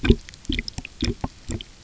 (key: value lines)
label: geophony, waves
recorder: SoundTrap 300